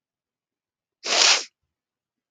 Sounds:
Sniff